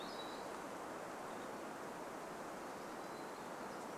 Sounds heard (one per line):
Hermit Thrush song